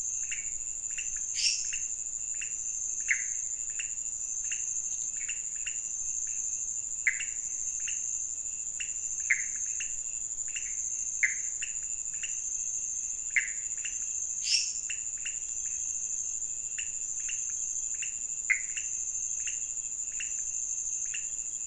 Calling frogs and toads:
pointedbelly frog (Leptodactylus podicipinus), lesser tree frog (Dendropsophus minutus), Pithecopus azureus
1:30am

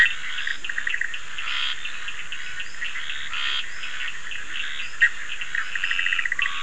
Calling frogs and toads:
Cochran's lime tree frog (Sphaenorhynchus surdus), Leptodactylus latrans, Bischoff's tree frog (Boana bischoffi), Scinax perereca
10:30pm

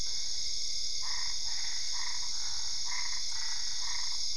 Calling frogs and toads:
Boana albopunctata
11:30pm

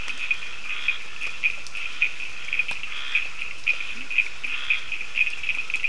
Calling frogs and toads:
Scinax perereca, Cochran's lime tree frog (Sphaenorhynchus surdus), Leptodactylus latrans
4:30am

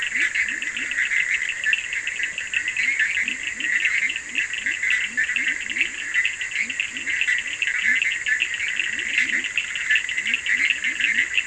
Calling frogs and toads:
Leptodactylus latrans, Bischoff's tree frog (Boana bischoffi), Cochran's lime tree frog (Sphaenorhynchus surdus)
~1am

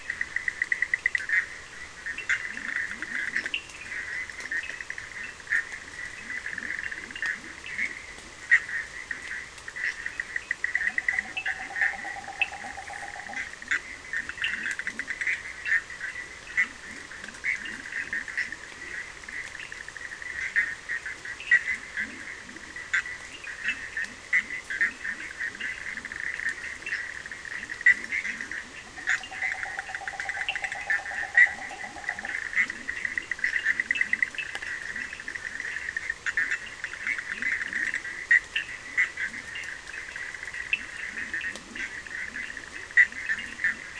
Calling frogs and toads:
Cochran's lime tree frog (Sphaenorhynchus surdus), Bischoff's tree frog (Boana bischoffi), Leptodactylus latrans, yellow cururu toad (Rhinella icterica)
~11pm

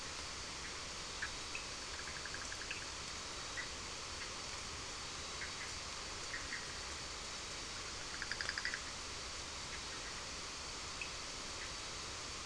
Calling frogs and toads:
Bischoff's tree frog (Boana bischoffi), Cochran's lime tree frog (Sphaenorhynchus surdus)
midnight

